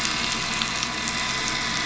{"label": "anthrophony, boat engine", "recorder": "SoundTrap 500"}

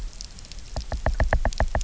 {"label": "biophony, knock", "recorder": "SoundTrap 300"}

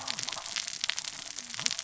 {"label": "biophony, cascading saw", "recorder": "SoundTrap 600 or HydroMoth"}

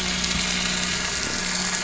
{"label": "anthrophony, boat engine", "recorder": "SoundTrap 500"}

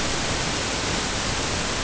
{"label": "ambient", "recorder": "HydroMoth"}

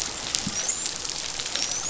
{"label": "biophony, dolphin", "recorder": "SoundTrap 500"}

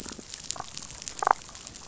{"label": "biophony, damselfish", "recorder": "SoundTrap 500"}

